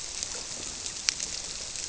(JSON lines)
{"label": "biophony", "recorder": "SoundTrap 300"}